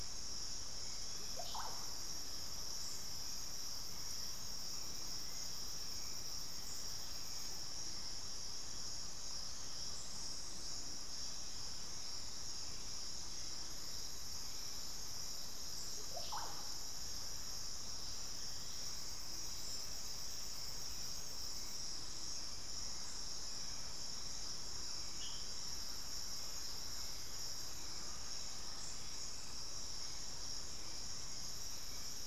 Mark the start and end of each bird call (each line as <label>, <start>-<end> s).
Hauxwell's Thrush (Turdus hauxwelli), 0.0-32.3 s
Russet-backed Oropendola (Psarocolius angustifrons), 1.0-1.9 s
Russet-backed Oropendola (Psarocolius angustifrons), 15.9-16.6 s
unidentified bird, 18.2-20.8 s
Undulated Tinamou (Crypturellus undulatus), 27.7-29.9 s